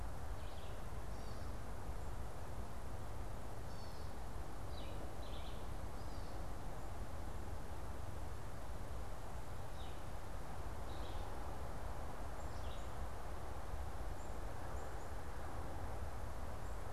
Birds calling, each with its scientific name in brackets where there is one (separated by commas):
Red-eyed Vireo (Vireo olivaceus), Black-capped Chickadee (Poecile atricapillus), Gray Catbird (Dumetella carolinensis)